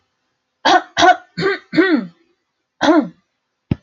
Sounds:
Throat clearing